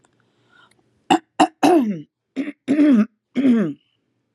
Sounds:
Throat clearing